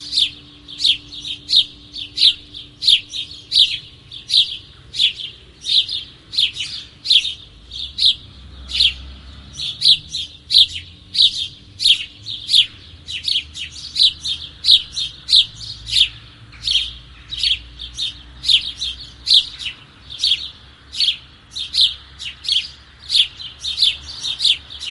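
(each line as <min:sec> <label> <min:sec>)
0:00.0 Several birds chirp repeatedly with overlapping calls. 0:24.9
0:00.0 Traffic rushing by repeatedly in the distance. 0:24.9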